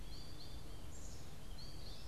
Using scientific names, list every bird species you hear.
Poecile atricapillus, Spinus tristis, Dryocopus pileatus